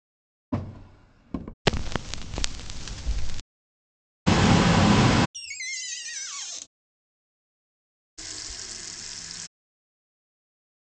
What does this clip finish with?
water tap